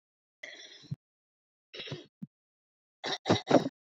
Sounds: Throat clearing